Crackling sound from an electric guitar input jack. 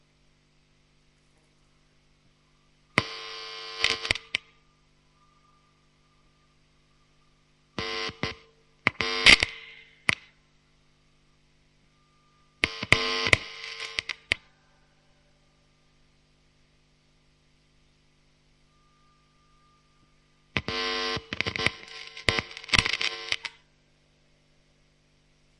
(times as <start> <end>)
2.8 4.8, 7.7 10.6, 12.4 14.5, 20.3 23.6